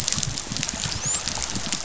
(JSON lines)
{"label": "biophony, dolphin", "recorder": "SoundTrap 500"}